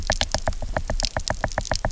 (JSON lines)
{"label": "biophony, knock", "recorder": "SoundTrap 300"}